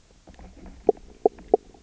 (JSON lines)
{"label": "biophony, knock croak", "recorder": "SoundTrap 300"}